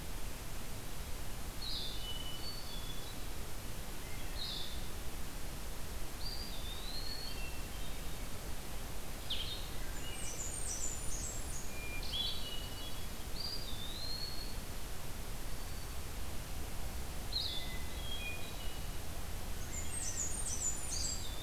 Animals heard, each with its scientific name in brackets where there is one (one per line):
Blackburnian Warbler (Setophaga fusca)
Wood Thrush (Hylocichla mustelina)
Eastern Wood-Pewee (Contopus virens)
Blue-headed Vireo (Vireo solitarius)
Hermit Thrush (Catharus guttatus)